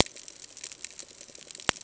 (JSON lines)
{"label": "ambient", "recorder": "HydroMoth"}